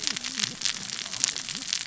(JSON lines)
{"label": "biophony, cascading saw", "recorder": "SoundTrap 600 or HydroMoth"}